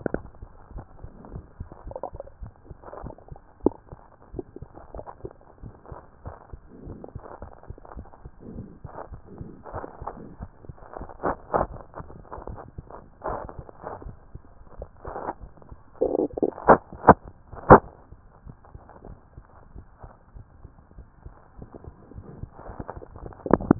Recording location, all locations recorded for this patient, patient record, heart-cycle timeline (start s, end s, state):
mitral valve (MV)
aortic valve (AV)+pulmonary valve (PV)+tricuspid valve (TV)+mitral valve (MV)
#Age: Child
#Sex: Female
#Height: 112.0 cm
#Weight: 23.5 kg
#Pregnancy status: False
#Murmur: Absent
#Murmur locations: nan
#Most audible location: nan
#Systolic murmur timing: nan
#Systolic murmur shape: nan
#Systolic murmur grading: nan
#Systolic murmur pitch: nan
#Systolic murmur quality: nan
#Diastolic murmur timing: nan
#Diastolic murmur shape: nan
#Diastolic murmur grading: nan
#Diastolic murmur pitch: nan
#Diastolic murmur quality: nan
#Outcome: Normal
#Campaign: 2015 screening campaign
0.00	2.16	unannotated
2.16	2.23	S2
2.23	2.40	diastole
2.40	2.54	S1
2.54	2.66	systole
2.66	2.78	S2
2.78	3.00	diastole
3.00	3.12	S1
3.12	3.28	systole
3.28	3.38	S2
3.38	3.62	diastole
3.62	3.74	S1
3.74	3.90	systole
3.90	4.00	S2
4.00	4.30	diastole
4.30	4.44	S1
4.44	4.56	systole
4.56	4.68	S2
4.68	4.92	diastole
4.92	5.04	S1
5.04	5.20	systole
5.20	5.34	S2
5.34	5.60	diastole
5.60	5.74	S1
5.74	5.88	systole
5.88	5.98	S2
5.98	6.24	diastole
6.24	6.34	S1
6.34	6.50	systole
6.50	6.64	S2
6.64	6.84	diastole
6.84	7.00	S1
7.00	7.12	systole
7.12	7.22	S2
7.22	7.40	diastole
7.40	7.52	S1
7.52	7.66	systole
7.66	7.76	S2
7.76	7.94	diastole
7.94	8.08	S1
8.08	8.22	systole
8.22	8.32	S2
8.32	8.52	diastole
8.52	8.70	S1
8.70	8.82	systole
8.82	8.92	S2
8.92	9.10	diastole
9.10	9.22	S1
9.22	9.38	systole
9.38	9.52	S2
9.52	9.72	diastole
9.72	9.84	S1
9.84	23.79	unannotated